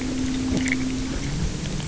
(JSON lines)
{"label": "anthrophony, boat engine", "recorder": "SoundTrap 300"}